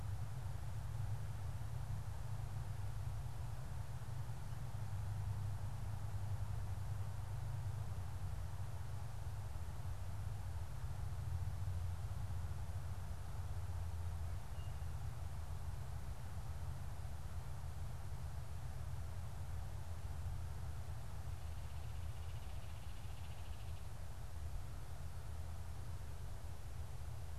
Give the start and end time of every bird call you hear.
[14.22, 15.12] Tufted Titmouse (Baeolophus bicolor)
[21.32, 24.12] Baltimore Oriole (Icterus galbula)

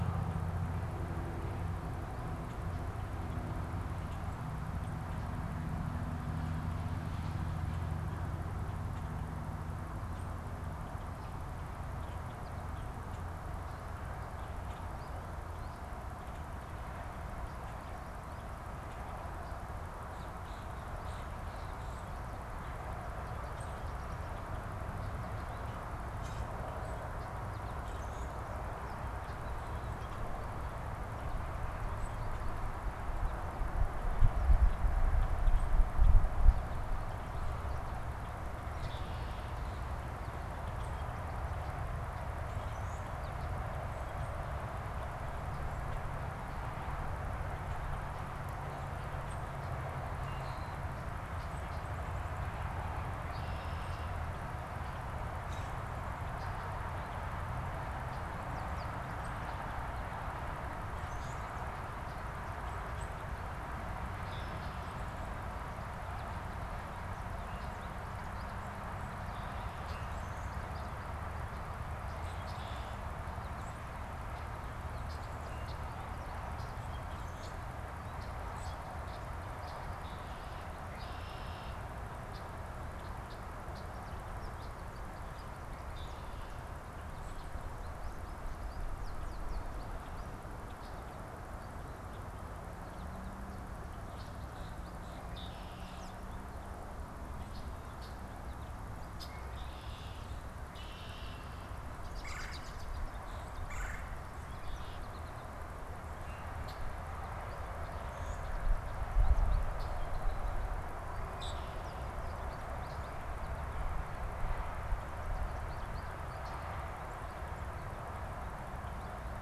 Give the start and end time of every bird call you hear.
[20.37, 22.37] Common Grackle (Quiscalus quiscula)
[23.47, 23.87] Common Grackle (Quiscalus quiscula)
[23.87, 26.07] American Goldfinch (Spinus tristis)
[26.07, 26.57] Common Grackle (Quiscalus quiscula)
[27.37, 30.37] American Goldfinch (Spinus tristis)
[27.87, 28.37] Common Grackle (Quiscalus quiscula)
[31.97, 32.17] Common Grackle (Quiscalus quiscula)
[33.97, 36.27] Common Grackle (Quiscalus quiscula)
[38.67, 39.87] Red-winged Blackbird (Agelaius phoeniceus)
[40.57, 43.17] Common Grackle (Quiscalus quiscula)
[49.97, 50.77] Red-winged Blackbird (Agelaius phoeniceus)
[50.57, 50.87] Common Grackle (Quiscalus quiscula)
[53.17, 54.27] Red-winged Blackbird (Agelaius phoeniceus)
[55.27, 55.87] Common Grackle (Quiscalus quiscula)
[58.27, 60.27] American Goldfinch (Spinus tristis)
[60.97, 61.47] Common Grackle (Quiscalus quiscula)
[62.87, 63.47] Common Grackle (Quiscalus quiscula)
[64.17, 64.87] Red-winged Blackbird (Agelaius phoeniceus)
[65.97, 69.07] American Goldfinch (Spinus tristis)
[69.77, 70.17] Common Grackle (Quiscalus quiscula)
[70.37, 71.47] American Goldfinch (Spinus tristis)
[72.17, 72.47] Common Grackle (Quiscalus quiscula)
[72.47, 73.07] Red-winged Blackbird (Agelaius phoeniceus)
[74.97, 75.87] Red-winged Blackbird (Agelaius phoeniceus)
[75.97, 85.37] unidentified bird
[76.47, 76.77] Common Grackle (Quiscalus quiscula)
[77.07, 77.57] Common Grackle (Quiscalus quiscula)
[78.47, 78.77] Common Grackle (Quiscalus quiscula)
[79.87, 81.97] Red-winged Blackbird (Agelaius phoeniceus)
[84.07, 85.57] American Goldfinch (Spinus tristis)
[85.77, 86.67] Red-winged Blackbird (Agelaius phoeniceus)
[87.17, 87.57] Common Grackle (Quiscalus quiscula)
[87.97, 91.17] American Goldfinch (Spinus tristis)
[94.37, 95.27] Common Grackle (Quiscalus quiscula)
[95.17, 96.17] Red-winged Blackbird (Agelaius phoeniceus)
[95.87, 96.37] American Robin (Turdus migratorius)
[97.17, 99.37] unidentified bird
[99.27, 101.77] Red-winged Blackbird (Agelaius phoeniceus)
[101.87, 103.07] American Robin (Turdus migratorius)
[102.07, 102.77] Red-bellied Woodpecker (Melanerpes carolinus)
[102.97, 105.77] American Goldfinch (Spinus tristis)
[103.17, 104.97] Common Grackle (Quiscalus quiscula)
[103.47, 104.27] Red-bellied Woodpecker (Melanerpes carolinus)
[104.47, 105.27] Red-winged Blackbird (Agelaius phoeniceus)
[106.17, 106.87] unidentified bird
[107.17, 110.67] American Goldfinch (Spinus tristis)
[108.07, 108.57] Common Grackle (Quiscalus quiscula)
[111.27, 111.87] Common Grackle (Quiscalus quiscula)
[111.77, 116.77] American Goldfinch (Spinus tristis)

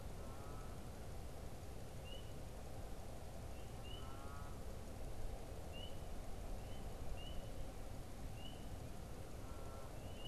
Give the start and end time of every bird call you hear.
[0.00, 10.20] unidentified bird

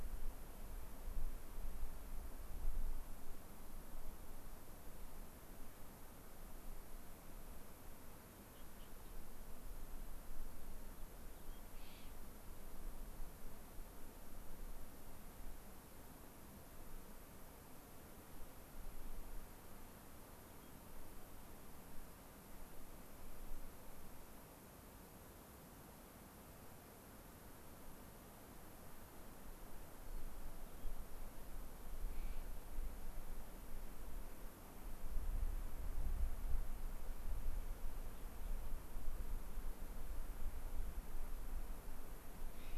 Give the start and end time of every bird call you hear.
[11.28, 11.58] White-crowned Sparrow (Zonotrichia leucophrys)
[11.68, 12.08] Clark's Nutcracker (Nucifraga columbiana)
[20.48, 20.68] White-crowned Sparrow (Zonotrichia leucophrys)
[30.68, 30.88] White-crowned Sparrow (Zonotrichia leucophrys)
[32.08, 32.38] Clark's Nutcracker (Nucifraga columbiana)
[42.48, 42.78] Clark's Nutcracker (Nucifraga columbiana)

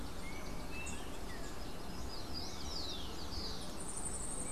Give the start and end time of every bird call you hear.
[1.88, 4.51] Rufous-collared Sparrow (Zonotrichia capensis)
[3.68, 4.51] Yellow-faced Grassquit (Tiaris olivaceus)

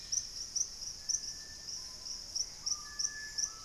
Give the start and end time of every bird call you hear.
[0.00, 0.51] Black-faced Antthrush (Formicarius analis)
[0.00, 3.64] Screaming Piha (Lipaugus vociferans)
[1.71, 3.64] Gray Antbird (Cercomacra cinerascens)

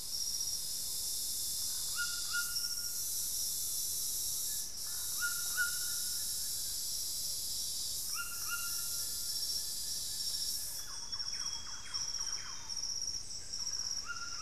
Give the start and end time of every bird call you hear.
[0.00, 14.41] White-throated Toucan (Ramphastos tucanus)
[1.52, 5.53] unidentified bird
[4.33, 11.72] Plain-winged Antshrike (Thamnophilus schistaceus)
[7.03, 11.03] unidentified bird
[10.22, 13.22] Amazonian Grosbeak (Cyanoloxia rothschildii)
[10.43, 13.12] Thrush-like Wren (Campylorhynchus turdinus)
[13.32, 14.41] unidentified bird

